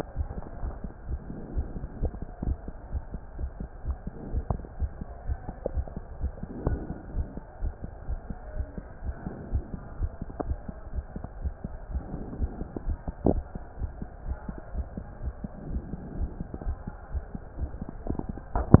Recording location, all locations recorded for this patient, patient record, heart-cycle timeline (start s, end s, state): aortic valve (AV)
aortic valve (AV)+pulmonary valve (PV)+tricuspid valve (TV)+mitral valve (MV)
#Age: Child
#Sex: Male
#Height: 163.0 cm
#Weight: 84.5 kg
#Pregnancy status: False
#Murmur: Absent
#Murmur locations: nan
#Most audible location: nan
#Systolic murmur timing: nan
#Systolic murmur shape: nan
#Systolic murmur grading: nan
#Systolic murmur pitch: nan
#Systolic murmur quality: nan
#Diastolic murmur timing: nan
#Diastolic murmur shape: nan
#Diastolic murmur grading: nan
#Diastolic murmur pitch: nan
#Diastolic murmur quality: nan
#Outcome: Abnormal
#Campaign: 2015 screening campaign
0.00	2.91	unannotated
2.91	3.03	S1
3.03	3.12	systole
3.12	3.20	S2
3.20	3.38	diastole
3.38	3.49	S1
3.49	3.59	systole
3.59	3.68	S2
3.68	3.84	diastole
3.84	3.96	S1
3.96	4.05	systole
4.05	4.12	S2
4.12	4.30	diastole
4.30	4.42	S1
4.42	4.48	systole
4.48	4.60	S2
4.60	4.80	diastole
4.80	4.92	S1
4.92	5.00	systole
5.00	5.06	S2
5.06	5.26	diastole
5.26	5.37	S1
5.37	5.46	systole
5.46	5.54	S2
5.54	5.76	diastole
5.76	5.86	S1
5.86	5.95	systole
5.95	6.02	S2
6.02	6.20	diastole
6.20	6.31	S1
6.31	6.40	systole
6.40	6.48	S2
6.48	6.66	diastole
6.66	6.77	S1
6.77	6.88	systole
6.88	6.96	S2
6.96	7.14	diastole
7.14	7.27	S1
7.27	7.35	systole
7.35	7.43	S2
7.43	7.61	diastole
7.61	7.72	S1
7.72	18.80	unannotated